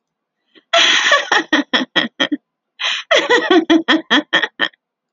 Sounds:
Laughter